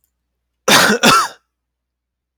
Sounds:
Cough